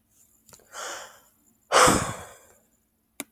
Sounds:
Sigh